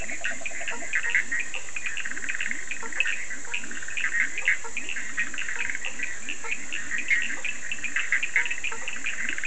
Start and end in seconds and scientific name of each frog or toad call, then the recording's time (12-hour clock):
0.0	1.2	Rhinella icterica
0.0	9.4	Boana bischoffi
0.0	9.4	Leptodactylus latrans
0.0	9.4	Sphaenorhynchus surdus
0.6	9.4	Boana faber
11:30pm